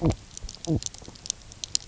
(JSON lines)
{"label": "biophony, knock croak", "recorder": "SoundTrap 300"}